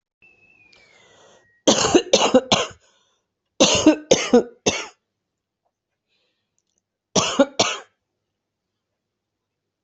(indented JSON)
{
  "expert_labels": [
    {
      "quality": "ok",
      "cough_type": "dry",
      "dyspnea": false,
      "wheezing": false,
      "stridor": false,
      "choking": false,
      "congestion": false,
      "nothing": true,
      "diagnosis": "COVID-19",
      "severity": "mild"
    }
  ],
  "age": 48,
  "gender": "female",
  "respiratory_condition": true,
  "fever_muscle_pain": false,
  "status": "symptomatic"
}